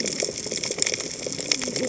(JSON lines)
{"label": "biophony, cascading saw", "recorder": "HydroMoth"}